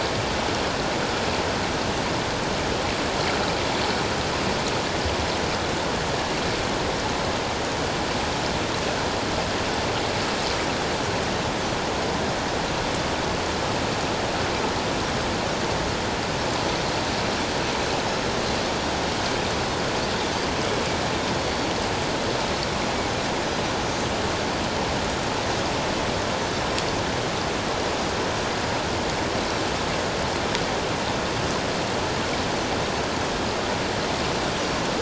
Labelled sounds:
21.4	21.7	Pacific white-sided dolphin, 4.3 to 4.6 kHz

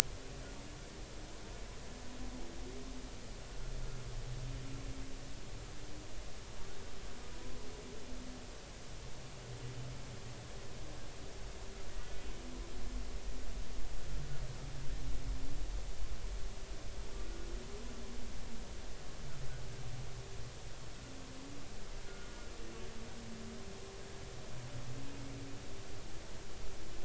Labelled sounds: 22.1	22.5	humpback whale, 1.4 to 1.5 kHz

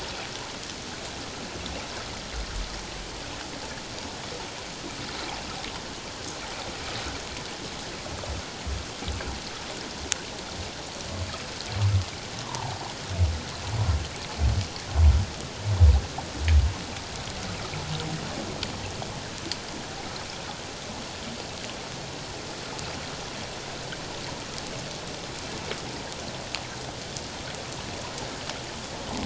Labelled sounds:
12.5	12.8	humpback whale, 0.78 to 1.1 kHz

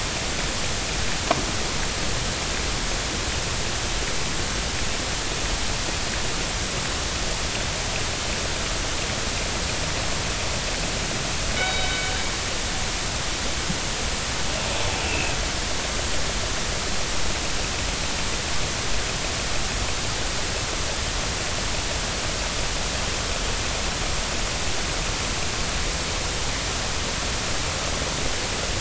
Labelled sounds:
11.6	12.1	killer whale, northern resident, G clan, 1.4 to 3.8 kHz
15.0	15.3	killer whale, northern resident, G clan, 2.3 to 2.8 kHz

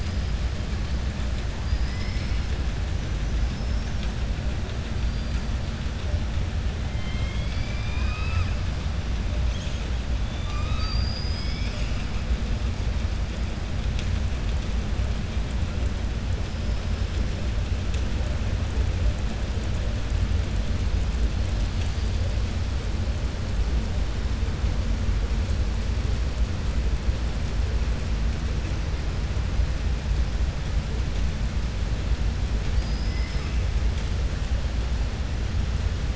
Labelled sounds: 1.6	2.4	killer whale, southern resident, 1.8 to 5.9 kHz
6.9	8.6	killer whale, southern resident, 1.0 to 5.8 kHz
10.2	12.0	killer whale, southern resident, 1.2 to 7.6 kHz
32.6	33.6	killer whale, southern resident, 1.2 to 5.3 kHz

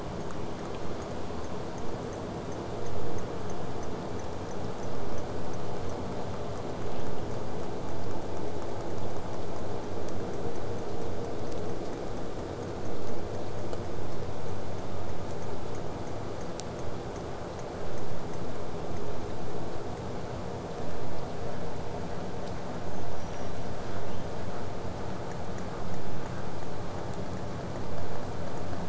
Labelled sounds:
22.9	24.4	killer whale, southern resident, whistle, 2.3 to 7.3 kHz

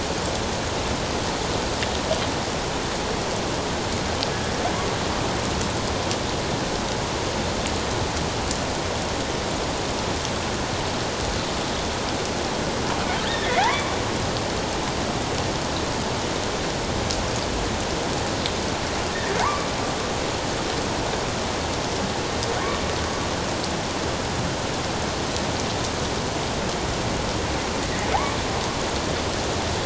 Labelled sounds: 13.2	13.9	killer whale, offshore, 1.7 to 2.4 kHz
19.4	19.7	killer whale, offshore, 0.78 to 1.2 kHz

